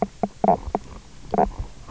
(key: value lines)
label: biophony, knock croak
recorder: SoundTrap 300